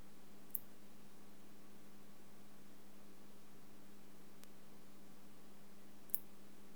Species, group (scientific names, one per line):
Parasteropleurus martorellii
Orthoptera